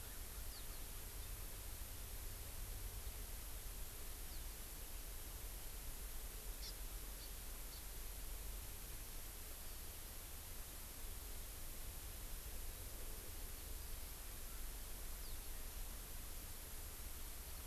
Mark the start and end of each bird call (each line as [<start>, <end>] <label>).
[0.48, 0.68] House Finch (Haemorhous mexicanus)
[4.28, 4.38] House Finch (Haemorhous mexicanus)
[6.58, 6.78] Hawaii Amakihi (Chlorodrepanis virens)
[7.18, 7.28] Hawaii Amakihi (Chlorodrepanis virens)
[7.68, 7.78] Hawaii Amakihi (Chlorodrepanis virens)
[15.18, 15.38] House Finch (Haemorhous mexicanus)